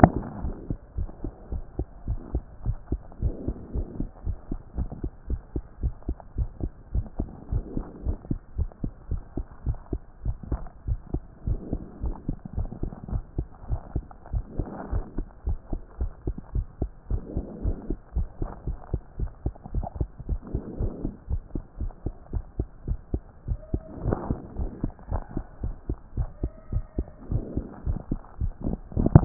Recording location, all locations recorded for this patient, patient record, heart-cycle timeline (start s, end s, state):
mitral valve (MV)
aortic valve (AV)+pulmonary valve (PV)+tricuspid valve (TV)+mitral valve (MV)
#Age: Child
#Sex: Male
#Height: 126.0 cm
#Weight: 15.1 kg
#Pregnancy status: False
#Murmur: Absent
#Murmur locations: nan
#Most audible location: nan
#Systolic murmur timing: nan
#Systolic murmur shape: nan
#Systolic murmur grading: nan
#Systolic murmur pitch: nan
#Systolic murmur quality: nan
#Diastolic murmur timing: nan
#Diastolic murmur shape: nan
#Diastolic murmur grading: nan
#Diastolic murmur pitch: nan
#Diastolic murmur quality: nan
#Outcome: Abnormal
#Campaign: 2014 screening campaign
0.00	0.14	systole
0.14	0.24	S2
0.24	0.42	diastole
0.42	0.54	S1
0.54	0.68	systole
0.68	0.78	S2
0.78	0.98	diastole
0.98	1.10	S1
1.10	1.24	systole
1.24	1.32	S2
1.32	1.52	diastole
1.52	1.64	S1
1.64	1.78	systole
1.78	1.88	S2
1.88	2.08	diastole
2.08	2.20	S1
2.20	2.34	systole
2.34	2.44	S2
2.44	2.66	diastole
2.66	2.78	S1
2.78	2.90	systole
2.90	3.02	S2
3.02	3.22	diastole
3.22	3.34	S1
3.34	3.44	systole
3.44	3.54	S2
3.54	3.74	diastole
3.74	3.86	S1
3.86	3.98	systole
3.98	4.08	S2
4.08	4.26	diastole
4.26	4.36	S1
4.36	4.50	systole
4.50	4.60	S2
4.60	4.78	diastole
4.78	4.90	S1
4.90	5.02	systole
5.02	5.12	S2
5.12	5.30	diastole
5.30	5.42	S1
5.42	5.56	systole
5.56	5.64	S2
5.64	5.82	diastole
5.82	5.94	S1
5.94	6.08	systole
6.08	6.18	S2
6.18	6.38	diastole
6.38	6.50	S1
6.50	6.62	systole
6.62	6.72	S2
6.72	6.94	diastole
6.94	7.06	S1
7.06	7.20	systole
7.20	7.30	S2
7.30	7.52	diastole
7.52	7.64	S1
7.64	7.76	systole
7.76	7.86	S2
7.86	8.04	diastole
8.04	8.16	S1
8.16	8.28	systole
8.28	8.38	S2
8.38	8.58	diastole
8.58	8.70	S1
8.70	8.82	systole
8.82	8.92	S2
8.92	9.10	diastole
9.10	9.22	S1
9.22	9.36	systole
9.36	9.46	S2
9.46	9.66	diastole
9.66	9.78	S1
9.78	9.92	systole
9.92	10.02	S2
10.02	10.24	diastole
10.24	10.36	S1
10.36	10.50	systole
10.50	10.64	S2
10.64	10.86	diastole
10.86	11.00	S1
11.00	11.14	systole
11.14	11.24	S2
11.24	11.46	diastole
11.46	11.60	S1
11.60	11.72	systole
11.72	11.82	S2
11.82	12.02	diastole
12.02	12.14	S1
12.14	12.28	systole
12.28	12.36	S2
12.36	12.56	diastole
12.56	12.68	S1
12.68	12.80	systole
12.80	12.90	S2
12.90	13.10	diastole
13.10	13.22	S1
13.22	13.38	systole
13.38	13.48	S2
13.48	13.68	diastole
13.68	13.80	S1
13.80	13.96	systole
13.96	14.08	S2
14.08	14.32	diastole
14.32	14.44	S1
14.44	14.58	systole
14.58	14.68	S2
14.68	14.90	diastole
14.90	15.04	S1
15.04	15.18	systole
15.18	15.26	S2
15.26	15.46	diastole
15.46	15.58	S1
15.58	15.72	systole
15.72	15.82	S2
15.82	16.00	diastole
16.00	16.12	S1
16.12	16.26	systole
16.26	16.36	S2
16.36	16.54	diastole
16.54	16.66	S1
16.66	16.80	systole
16.80	16.90	S2
16.90	17.10	diastole
17.10	17.22	S1
17.22	17.36	systole
17.36	17.46	S2
17.46	17.64	diastole
17.64	17.76	S1
17.76	17.90	systole
17.90	17.98	S2
17.98	18.16	diastole
18.16	18.28	S1
18.28	18.40	systole
18.40	18.50	S2
18.50	18.68	diastole
18.68	18.78	S1
18.78	18.92	systole
18.92	19.02	S2
19.02	19.20	diastole
19.20	19.30	S1
19.30	19.44	systole
19.44	19.54	S2
19.54	19.74	diastole
19.74	19.86	S1
19.86	19.96	systole
19.96	20.08	S2
20.08	20.28	diastole
20.28	20.40	S1
20.40	20.54	systole
20.54	20.64	S2
20.64	20.80	diastole
20.80	20.92	S1
20.92	21.04	systole
21.04	21.14	S2
21.14	21.30	diastole
21.30	21.42	S1
21.42	21.54	systole
21.54	21.62	S2
21.62	21.80	diastole
21.80	21.92	S1
21.92	22.06	systole
22.06	22.14	S2
22.14	22.34	diastole
22.34	22.44	S1
22.44	22.58	systole
22.58	22.68	S2
22.68	22.88	diastole
22.88	22.98	S1
22.98	23.14	systole
23.14	23.24	S2
23.24	23.46	diastole
23.46	23.58	S1
23.58	23.72	systole
23.72	23.82	S2
23.82	24.04	diastole
24.04	24.18	S1
24.18	24.30	systole
24.30	24.40	S2
24.40	24.58	diastole
24.58	24.70	S1
24.70	24.82	systole
24.82	24.92	S2
24.92	25.12	diastole
25.12	25.24	S1
25.24	25.36	systole
25.36	25.44	S2
25.44	25.64	diastole
25.64	25.76	S1
25.76	25.90	systole
25.90	25.98	S2
25.98	26.18	diastole
26.18	26.30	S1
26.30	26.42	systole
26.42	26.52	S2
26.52	26.72	diastole
26.72	26.84	S1
26.84	26.98	systole
26.98	27.08	S2
27.08	27.30	diastole
27.30	27.44	S1
27.44	27.56	systole
27.56	27.66	S2
27.66	27.86	diastole
27.86	28.00	S1
28.00	28.12	systole
28.12	28.22	S2
28.22	28.42	diastole
28.42	28.54	S1
28.54	28.66	systole
28.66	28.78	S2
28.78	28.96	diastole
28.96	29.10	S1
29.10	29.14	systole
29.14	29.25	S2